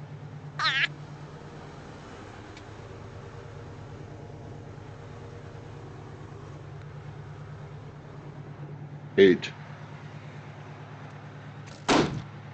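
First, laughter can be heard. Then a voice says "eight." After that, there is gunfire. An even background noise persists.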